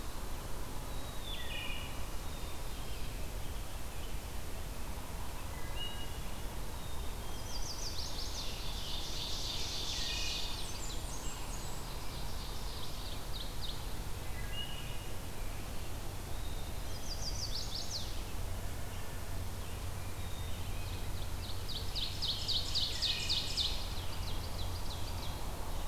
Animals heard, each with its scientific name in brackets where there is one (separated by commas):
Chestnut-sided Warbler (Setophaga pensylvanica), Ovenbird (Seiurus aurocapilla), Wood Thrush (Hylocichla mustelina), Blackburnian Warbler (Setophaga fusca), Black-capped Chickadee (Poecile atricapillus)